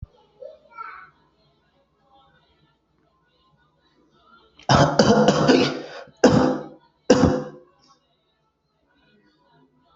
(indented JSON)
{
  "expert_labels": [
    {
      "quality": "good",
      "cough_type": "wet",
      "dyspnea": false,
      "wheezing": false,
      "stridor": false,
      "choking": false,
      "congestion": false,
      "nothing": true,
      "diagnosis": "lower respiratory tract infection",
      "severity": "mild"
    }
  ],
  "gender": "female",
  "respiratory_condition": false,
  "fever_muscle_pain": false,
  "status": "COVID-19"
}